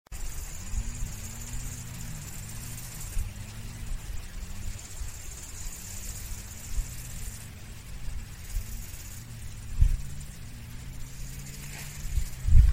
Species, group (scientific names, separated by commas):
Chorthippus biguttulus, Orthoptera